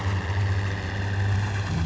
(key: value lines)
label: anthrophony, boat engine
recorder: SoundTrap 500